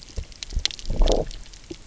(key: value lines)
label: biophony, low growl
recorder: SoundTrap 300